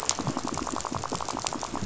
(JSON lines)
{"label": "biophony, rattle", "recorder": "SoundTrap 500"}